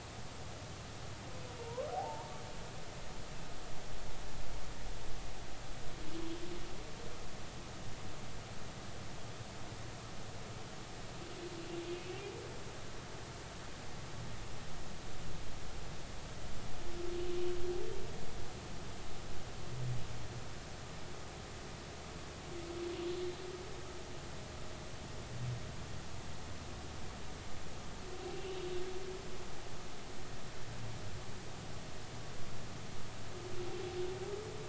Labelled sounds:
1.6	2.3	humpback whale, 0.80 to 1.1 kHz
11.9	12.2	humpback whale, 2.5 to 2.8 kHz

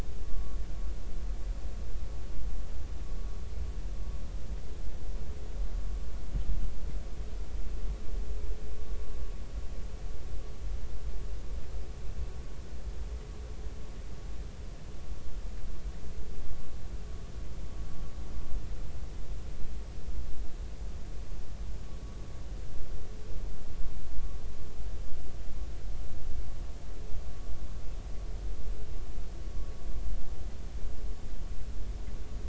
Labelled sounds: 0.3	0.6	vessel noise, 1.1 to 1.2 kHz

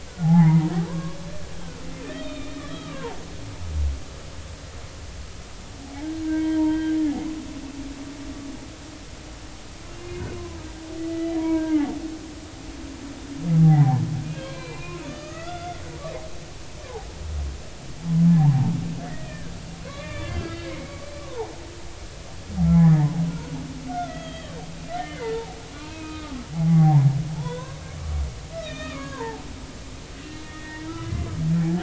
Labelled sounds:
0.1	1.2	humpback whale, 0.80 to 2.2 kHz
2.2	3.2	humpback whale, 0.80 to 4.0 kHz
6.2	7.0	humpback whale, 0.86 to 3.3 kHz
9.9	10.2	humpback whale, 2.7 to 2.9 kHz
11.1	11.9	humpback whale, 0.80 to 2.0 kHz
13.5	15.8	humpback whale, 0.80 to 4.2 kHz
18.3	18.5	humpback whale, 0.80 to 1.1 kHz
19.9	21.5	humpback whale, 0.80 to 3.6 kHz
22.7	23.5	humpback whale, 0.80 to 2.2 kHz
23.9	27.8	humpback whale, 0.80 to 3.7 kHz
28.5	29.4	humpback whale, 0.80 to 4.0 kHz
30.4	31.3	humpback whale, 0.93 to 2.1 kHz

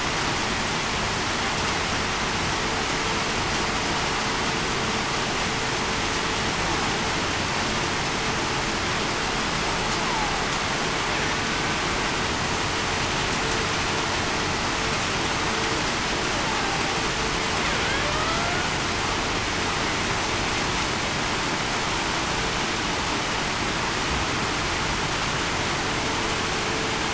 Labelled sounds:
18.1	18.5	killer whale, Bigg's (transient), 1.2 to 1.4 kHz

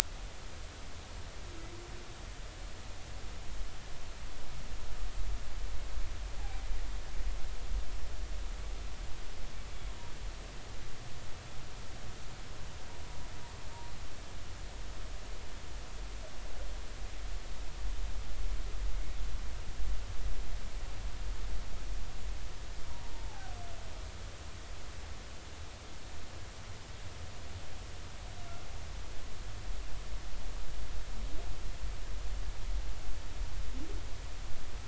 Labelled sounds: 22.9	23.5	humpback whale, 0.80 to 0.99 kHz

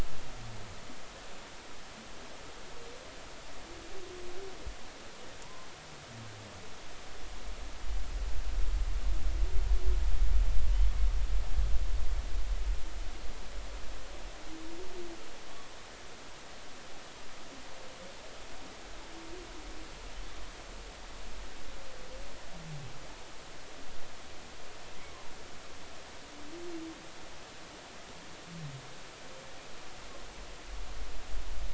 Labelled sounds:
5.4	5.7	humpback whale, 0.93 to 1.1 kHz

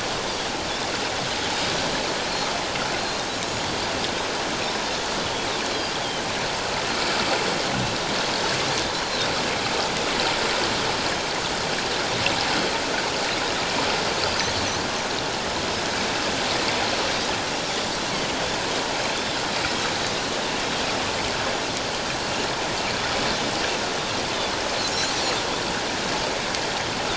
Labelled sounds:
2.2	2.5	Pacific white-sided dolphin, 4.1 to 4.5 kHz
3.0	3.2	Pacific white-sided dolphin, 4.1 to 4.3 kHz
17.5	17.7	Pacific white-sided dolphin, 5.5 to 5.6 kHz

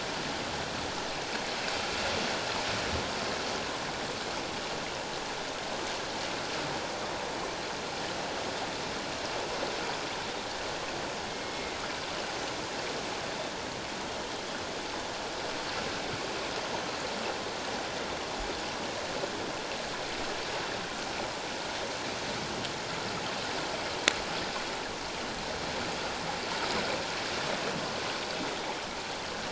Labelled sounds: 11.3	11.8	killer whale, northern resident, 2.0 to 2.2 kHz

